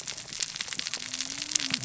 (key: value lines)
label: biophony, cascading saw
recorder: SoundTrap 600 or HydroMoth